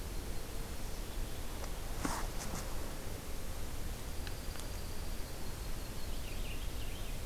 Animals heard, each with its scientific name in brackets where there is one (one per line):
Yellow-rumped Warbler (Setophaga coronata)
Purple Finch (Haemorhous purpureus)
Dark-eyed Junco (Junco hyemalis)